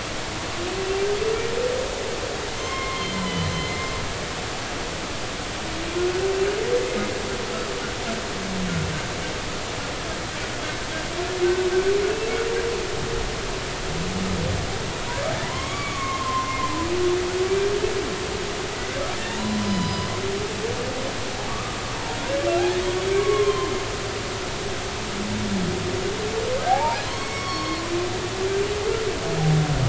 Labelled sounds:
0.8	1.0	humpback whale, 2.6 to 2.8 kHz
2.5	3.9	humpback whale, 0.99 to 4.2 kHz
15.4	16.7	humpback whale, 0.93 to 3.4 kHz
19.1	20.1	humpback whale, 0.86 to 5.1 kHz
21.5	21.8	humpback whale, 1.1 to 1.3 kHz
23.2	23.7	humpback whale, 0.99 to 3.4 kHz
26.6	27.8	humpback whale, 0.80 to 5.6 kHz

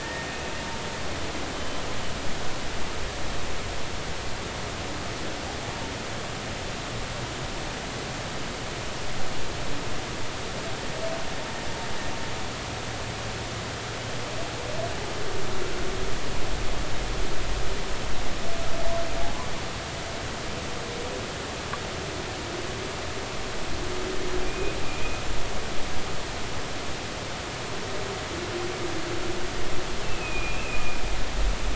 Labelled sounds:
0.0	0.4	humpback whale, 1.7 to 1.9 kHz
24.4	25.2	humpback whale, 2.3 to 2.6 kHz
30.0	31.0	humpback whale, 2.4 to 2.8 kHz

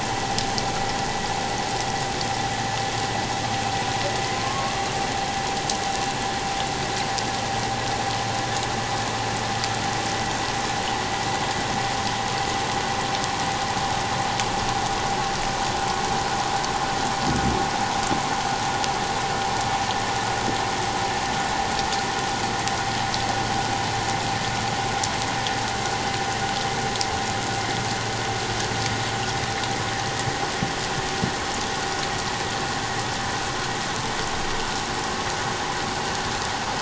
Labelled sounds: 4.3	4.7	water noise, 1.0 to 1.2 kHz

